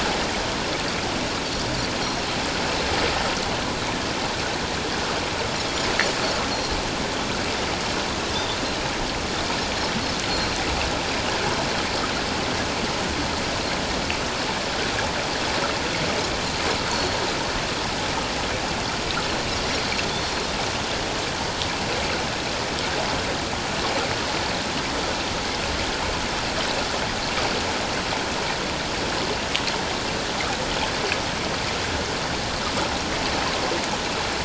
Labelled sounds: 6.5	6.8	Pacific white-sided dolphin, 4.1 to 4.4 kHz
16.9	17.2	Pacific white-sided dolphin, 4.2 to 4.5 kHz

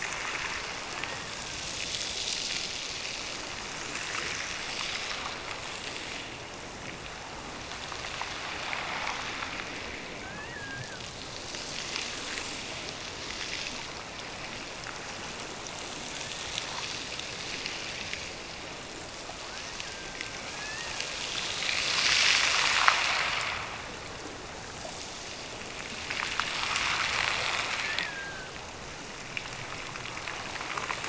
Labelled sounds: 0.9	1.8	killer whale, Bigg's (transient), Gulf of Alaska transient, 1.4 to 2.0 kHz
10.2	11.1	killer whale, Bigg's (transient), Gulf of Alaska transient, 1.4 to 2.9 kHz
19.4	21.6	killer whale, Bigg's (transient), Gulf of Alaska transient, 1.4 to 2.9 kHz
27.9	28.6	killer whale, Bigg's (transient), Gulf of Alaska transient, 1.4 to 2.0 kHz

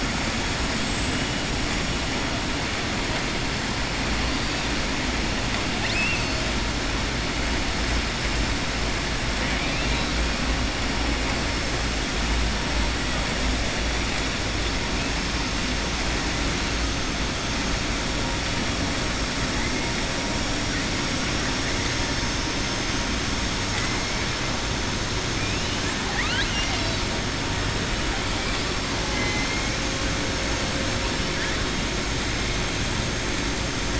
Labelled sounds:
5.7	6.5	killer whale, southern resident, 1.8 to 6.4 kHz
9.4	10.1	killer whale, southern resident, 1.9 to 4.2 kHz
25.4	27.0	killer whale, southern resident, 0.83 to 5.8 kHz
29.0	29.6	killer whale, southern resident, 1.6 to 3.1 kHz

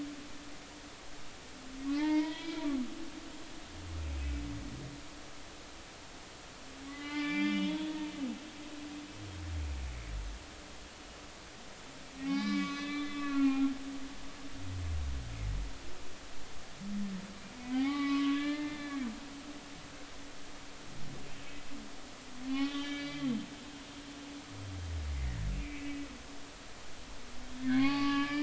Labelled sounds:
1.9	2.6	humpback whale, 0.83 to 3.4 kHz
6.9	8.0	humpback whale, 0.83 to 5.1 kHz
12.2	13.7	humpback whale, 1.0 to 6.0 kHz
17.5	19.1	humpback whale, 0.80 to 4.1 kHz
22.5	23.3	humpback whale, 1.7 to 4.7 kHz
25.1	26.0	humpback whale, 1.8 to 2.7 kHz
27.6	28.4	humpback whale, 0.80 to 4.6 kHz

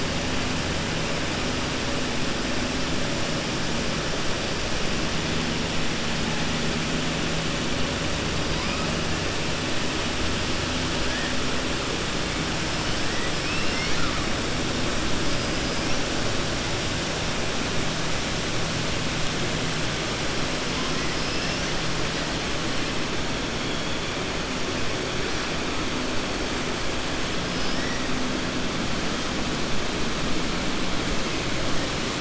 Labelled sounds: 13.3	14.2	killer whale, 1.2 to 5.8 kHz
21.1	21.7	killer whale, 4.9 to 6.1 kHz

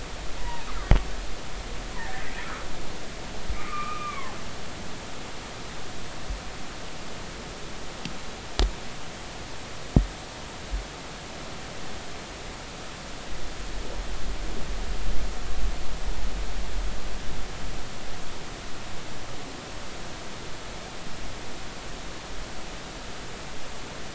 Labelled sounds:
0.4	0.7	humpback whale, 0.86 to 2.0 kHz
2.0	2.2	humpback whale, 1.7 to 2.0 kHz
3.5	4.4	humpback whale, 0.99 to 2.5 kHz

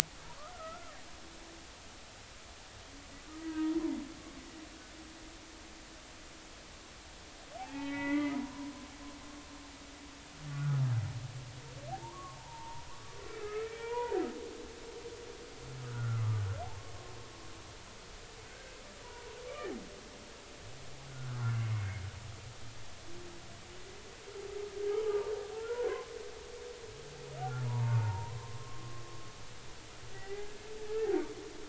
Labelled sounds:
0.4	1.0	humpback whale, 1.1 to 1.5 kHz
3.4	3.9	humpback whale, 0.90 to 1.7 kHz
7.6	8.9	humpback whale, 0.80 to 4.0 kHz
10.5	10.9	humpback whale, 1.1 to 1.5 kHz
11.9	14.2	humpback whale, 0.80 to 2.5 kHz
15.8	17.0	humpback whale, 0.99 to 1.5 kHz
18.5	18.7	humpback whale, 1.4 to 1.7 kHz
21.1	22.0	humpback whale, 1.2 to 2.2 kHz
25.1	25.9	humpback whale, 1.1 to 1.5 kHz
27.7	28.9	humpback whale, 0.83 to 1.5 kHz
30.1	31.1	humpback whale, 0.80 to 2.1 kHz

